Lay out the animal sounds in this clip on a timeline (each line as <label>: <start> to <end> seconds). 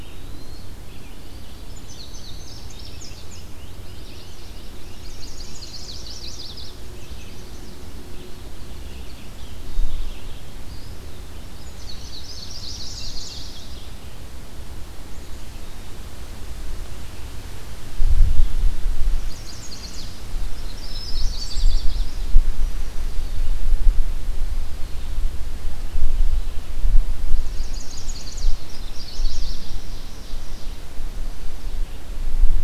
Eastern Wood-Pewee (Contopus virens): 0.0 to 0.8 seconds
Red-eyed Vireo (Vireo olivaceus): 0.0 to 18.7 seconds
Indigo Bunting (Passerina cyanea): 1.6 to 3.5 seconds
Great Crested Flycatcher (Myiarchus crinitus): 2.5 to 5.1 seconds
Chestnut-sided Warbler (Setophaga pensylvanica): 3.5 to 6.7 seconds
Yellow Warbler (Setophaga petechia): 6.5 to 7.8 seconds
Eastern Wood-Pewee (Contopus virens): 10.5 to 11.8 seconds
Indigo Bunting (Passerina cyanea): 11.6 to 13.0 seconds
Chestnut-sided Warbler (Setophaga pensylvanica): 12.3 to 13.9 seconds
Chestnut-sided Warbler (Setophaga pensylvanica): 19.2 to 20.2 seconds
Chestnut-sided Warbler (Setophaga pensylvanica): 20.5 to 22.3 seconds
Black-capped Chickadee (Poecile atricapillus): 20.7 to 21.9 seconds
unidentified call: 21.2 to 21.9 seconds
Eastern Wood-Pewee (Contopus virens): 24.3 to 25.3 seconds
Chestnut-sided Warbler (Setophaga pensylvanica): 27.4 to 29.7 seconds
Ovenbird (Seiurus aurocapilla): 29.6 to 31.0 seconds